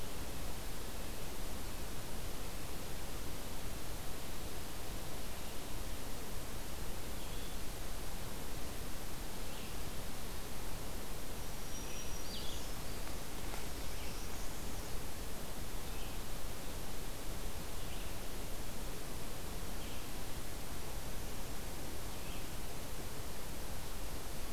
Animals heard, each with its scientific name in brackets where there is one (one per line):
Northern Parula (Setophaga americana)
Red-eyed Vireo (Vireo olivaceus)
Black-throated Green Warbler (Setophaga virens)